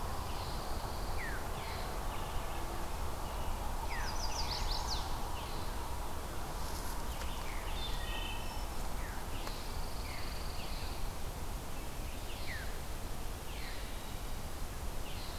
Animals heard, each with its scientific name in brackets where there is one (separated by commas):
Wood Thrush (Hylocichla mustelina), Chestnut-sided Warbler (Setophaga pensylvanica), Veery (Catharus fuscescens), Pine Warbler (Setophaga pinus)